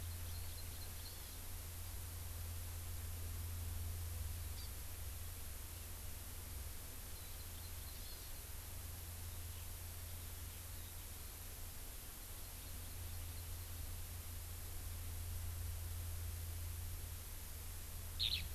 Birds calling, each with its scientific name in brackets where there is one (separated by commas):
Eurasian Skylark (Alauda arvensis), Hawaii Amakihi (Chlorodrepanis virens)